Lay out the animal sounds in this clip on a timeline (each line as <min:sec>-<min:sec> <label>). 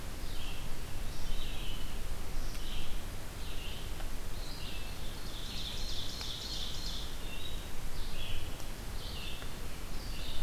0:00.0-0:10.4 Red-eyed Vireo (Vireo olivaceus)
0:05.1-0:07.1 Ovenbird (Seiurus aurocapilla)